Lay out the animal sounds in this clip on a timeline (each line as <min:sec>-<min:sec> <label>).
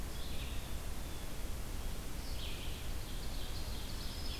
0:00.0-0:04.4 Red-eyed Vireo (Vireo olivaceus)
0:02.8-0:04.4 Ovenbird (Seiurus aurocapilla)